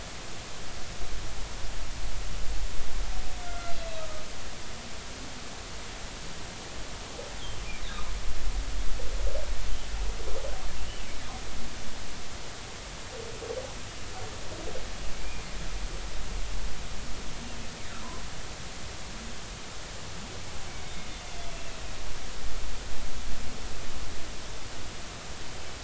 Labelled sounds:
3.4	4.2	humpback whale, 1.2 to 2.1 kHz
10.8	11.0	humpback whale, 2.7 to 3.1 kHz
15.1	15.4	humpback whale, 2.2 to 2.5 kHz
20.8	21.1	humpback whale, 3.6 to 3.7 kHz

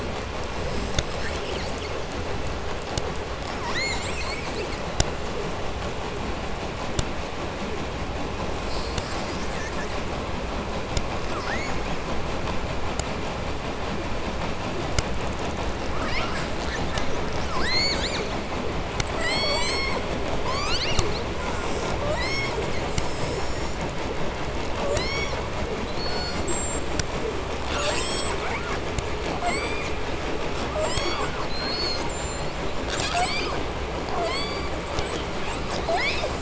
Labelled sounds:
1.0	2.0	killer whale, 1.2 to 8.0 kHz
3.4	5.0	killer whale, 0.78 to 8.0 kHz
8.5	10.1	killer whale, southern resident, 1.3 to 8.0 kHz
11.2	12.2	killer whale, 0.66 to 8.0 kHz
15.8	17.3	killer whale, 0.74 to 8.0 kHz
17.4	18.4	killer whale, southern resident, 0.80 to 8.0 kHz
19.0	20.1	killer whale, southern resident, J pod, call S44, 0.92 to 8.0 kHz
20.3	21.2	killer whale, 0.74 to 8.0 kHz
21.3	22.8	killer whale, southern resident, J pod, call S44, 0.83 to 8.0 kHz
24.6	25.5	killer whale, southern resident, J pod, call S44, 0.72 to 8.0 kHz
25.8	26.9	killer whale, southern resident, J pod, call S42, 0.72 to 8.0 kHz
27.4	28.8	killer whale, southern resident, J pod, call S44, 0.70 to 8.0 kHz
29.1	30.0	killer whale, southern resident, J pod, call S44, 0.50 to 8.0 kHz
30.6	32.5	killer whale, southern resident, J pod, call S44 and call S42, 0.52 to 8.0 kHz
32.7	33.6	killer whale, 0.54 to 8.0 kHz
34.0	34.8	killer whale, southern resident, J pod, call S44, 0.50 to 8.0 kHz
35.0	36.4	killer whale, 0.45 to 8.0 kHz

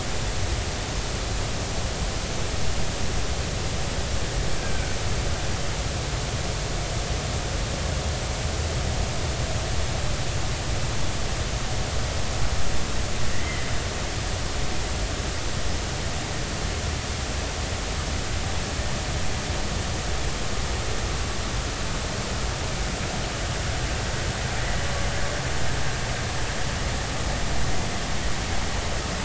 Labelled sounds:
4.6	5.0	killer whale, Bigg's (transient), 1.4 to 1.7 kHz
13.3	13.7	killer whale, Bigg's (transient), 1.8 to 2.1 kHz

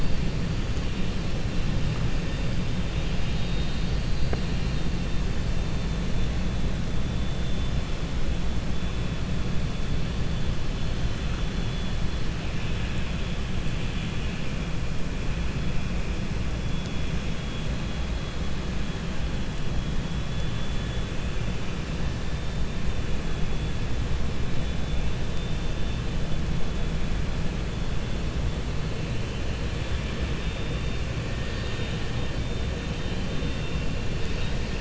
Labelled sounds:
2.9	4.0	vessel noise, 2.4 to 4.7 kHz
31.3	32.0	vessel noise, 1.5 to 4.6 kHz
34.1	34.7	vessel noise, 2.6 to 4.8 kHz

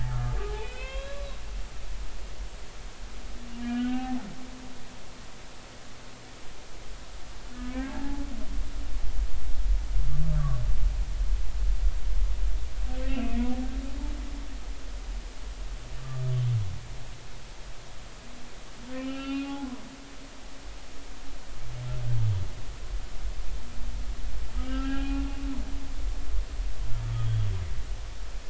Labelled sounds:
0.1	1.4	humpback whale, 0.96 to 4.0 kHz
3.6	4.2	humpback whale, 0.80 to 3.1 kHz
7.5	8.3	humpback whale, 0.80 to 2.0 kHz
13.0	13.4	humpback whale, 2.4 to 3.0 kHz
16.0	16.2	humpback whale, 1.1 to 1.2 kHz
18.9	19.6	humpback whale, 1.3 to 3.6 kHz
24.6	25.2	humpback whale, 0.80 to 3.1 kHz

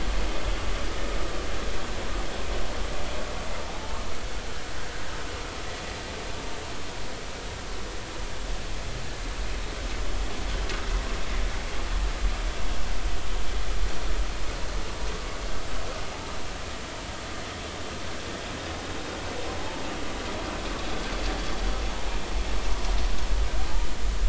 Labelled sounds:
3.7	4.0	humpback whale, 0.80 to 0.93 kHz

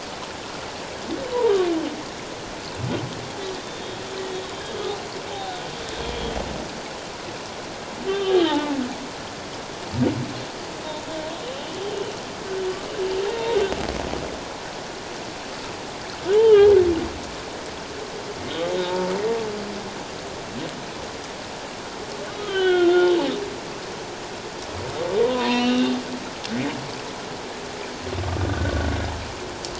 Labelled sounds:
3.5	4.0	humpback whale, 3.5 to 3.8 kHz
5.3	5.5	humpback whale, 0.78 to 0.91 kHz
8.1	8.8	humpback whale, 0.81 to 3.3 kHz
13.3	13.6	humpback whale, 0.78 to 1.0 kHz
16.3	16.7	humpback whale, 2.8 to 3.2 kHz
18.8	19.1	humpback whale, 0.84 to 0.97 kHz
22.4	23.1	humpback whale, 1.1 to 3.8 kHz
25.2	25.9	humpback whale, 0.91 to 4.3 kHz
28.4	28.9	humpback whale, 1.4 to 1.6 kHz

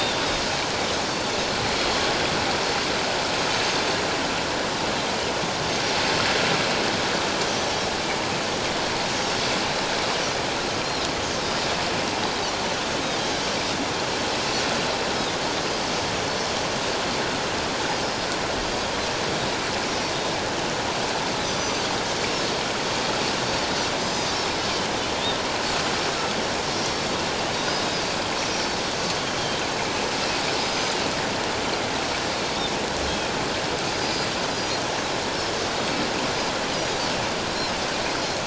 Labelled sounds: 5.7	5.9	Pacific white-sided dolphin, 4.4 to 4.9 kHz
9.2	9.5	Pacific white-sided dolphin, 5.3 to 5.9 kHz
13.4	13.6	Pacific white-sided dolphin, 5.3 to 5.7 kHz
21.5	21.8	Pacific white-sided dolphin, 5.8 to 6.1 kHz
24.0	24.6	Pacific white-sided dolphin, 4.7 to 6.2 kHz
26.7	27.2	Pacific white-sided dolphin, 4.4 to 5.7 kHz
28.5	28.8	Pacific white-sided dolphin, 5.1 to 5.7 kHz
30.6	31.0	Pacific white-sided dolphin, 4.8 to 6.3 kHz
33.1	33.3	Pacific white-sided dolphin, 3.2 to 3.3 kHz
33.9	34.8	Pacific white-sided dolphin, 4.4 to 6.0 kHz
37.5	37.8	Pacific white-sided dolphin, 5.2 to 5.6 kHz

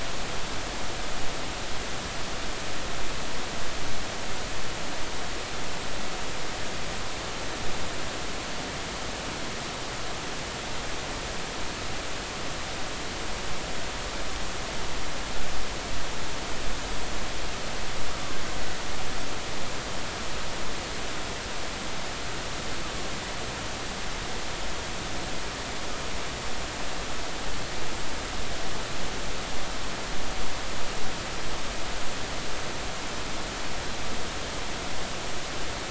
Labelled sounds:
18.1	18.4	killer whale, Bigg's (transient), 1.0 to 1.3 kHz

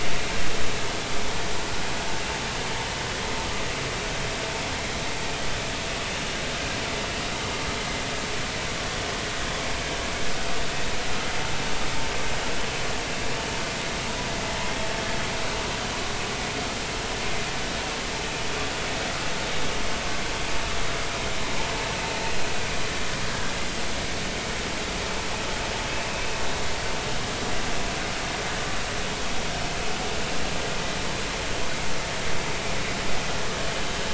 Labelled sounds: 6.1	6.4	vessel noise, 2.8 to 3.0 kHz

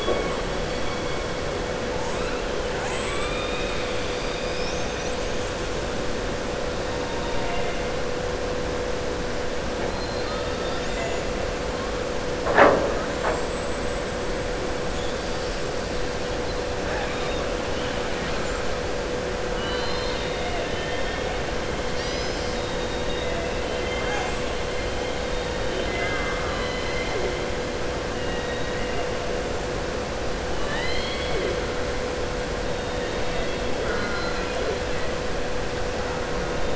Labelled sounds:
9.9	11.3	killer whale, southern resident, 2.0 to 7.5 kHz
13.1	14.0	killer whale, southern resident, 7.1 to 7.8 kHz
19.5	21.3	killer whale, southern resident, 0.94 to 5.2 kHz

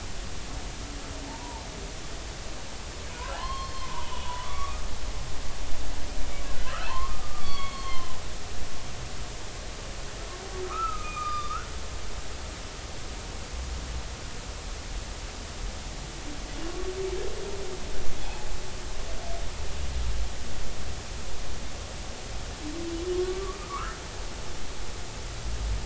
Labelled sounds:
1.3	1.6	humpback whale, 0.83 to 1.0 kHz
3.3	4.8	humpback whale, 0.80 to 4.4 kHz
6.5	8.1	humpback whale, 0.83 to 4.6 kHz
10.6	11.7	humpback whale, 1.1 to 3.7 kHz
16.6	16.9	humpback whale, 1.0 to 1.2 kHz
18.2	18.5	humpback whale, 0.80 to 0.96 kHz
23.1	24.0	humpback whale, 0.99 to 1.7 kHz

